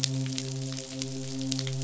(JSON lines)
{"label": "biophony, midshipman", "recorder": "SoundTrap 500"}